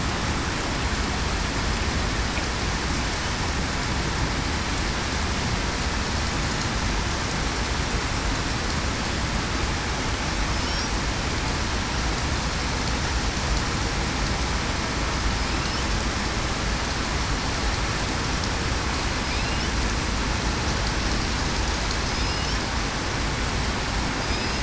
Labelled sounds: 22.1	22.4	killer whale, southern resident, 5.1 to 5.2 kHz
24.3	24.6	killer whale, southern resident, 5.0 to 5.1 kHz

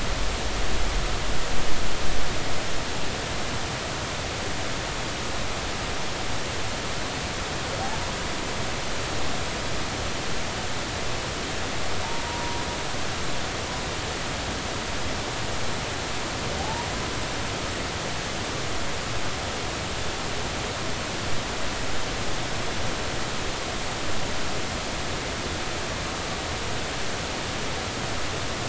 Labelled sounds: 12.2	12.7	humpback whale, 0.90 to 1.0 kHz
16.6	16.9	humpback whale, 0.80 to 1.0 kHz

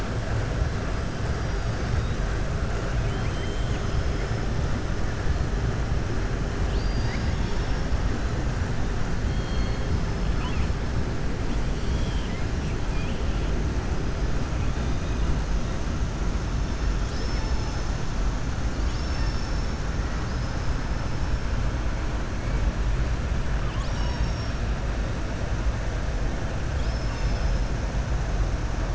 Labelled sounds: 2.9	4.1	killer whale, southern resident, 2.0 to 7.6 kHz
6.6	7.8	killer whale, southern resident, 1.9 to 6.3 kHz
11.7	12.4	killer whale, southern resident, 2.0 to 5.8 kHz
26.7	27.7	killer whale, southern resident, 2.2 to 7.1 kHz

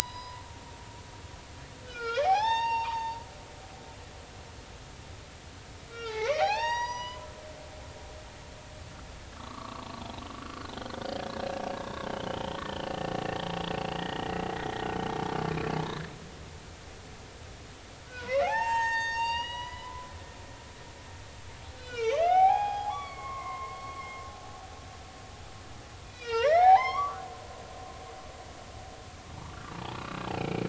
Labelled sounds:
1.0	3.2	humpback whale, 0.80 to 6.5 kHz
5.9	7.2	humpback whale, 0.80 to 6.8 kHz
9.3	10.0	humpback whale, 0.99 to 1.3 kHz
10.4	10.7	humpback whale, 1.3 to 1.5 kHz
11.8	14.2	humpback whale, 1.7 to 4.0 kHz
15.5	16.1	humpback whale, 1.5 to 2.7 kHz
18.1	20.1	humpback whale, 0.80 to 7.4 kHz
21.8	24.0	humpback whale, 0.80 to 5.0 kHz
26.0	27.2	humpback whale, 0.80 to 6.0 kHz
29.7	30.6	humpback whale, 0.80 to 2.6 kHz

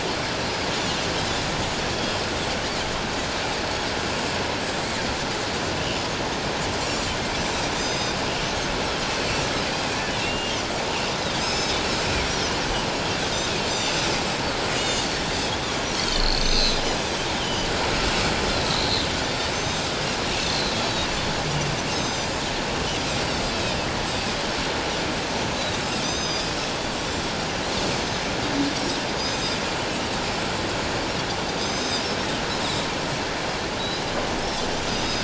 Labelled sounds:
1.9	2.2	Pacific white-sided dolphin, 3.1 to 3.4 kHz
6.7	8.2	Pacific white-sided dolphin, 3.6 to 7.5 kHz
10.2	10.5	Pacific white-sided dolphin, 2.6 to 2.9 kHz
11.4	12.5	Pacific white-sided dolphin, 2.1 to 6.6 kHz
13.7	15.0	Pacific white-sided dolphin, 2.8 to 7.4 kHz
15.9	16.8	Pacific white-sided dolphin, 2.9 to 6.3 kHz
17.4	17.7	Pacific white-sided dolphin, 2.8 to 3.3 kHz
18.5	19.9	Pacific white-sided dolphin, 3.4 to 6.3 kHz
20.4	21.1	Pacific white-sided dolphin, 3.7 to 4.8 kHz
21.9	22.4	Pacific white-sided dolphin, 3.6 to 7.5 kHz
23.4	23.8	Pacific white-sided dolphin, 3.6 to 4.4 kHz
26.0	26.5	Pacific white-sided dolphin, 3.4 to 6.4 kHz
28.7	29.6	Pacific white-sided dolphin, 5.3 to 6.3 kHz
31.6	32.1	Pacific white-sided dolphin, 3.5 to 7.6 kHz
33.8	35.2	Pacific white-sided dolphin, 3.6 to 6.4 kHz

